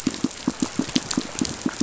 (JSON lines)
{"label": "biophony, pulse", "recorder": "SoundTrap 500"}